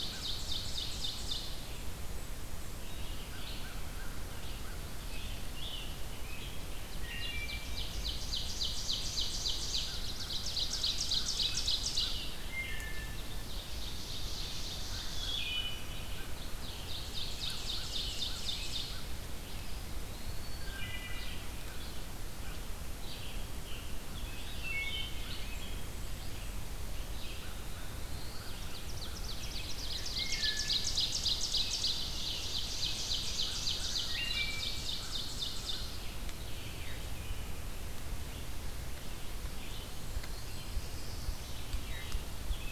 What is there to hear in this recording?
Ovenbird, American Crow, Red-eyed Vireo, Scarlet Tanager, Wood Thrush, Eastern Wood-Pewee, Black-throated Blue Warbler, Ruffed Grouse